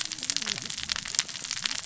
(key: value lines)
label: biophony, cascading saw
recorder: SoundTrap 600 or HydroMoth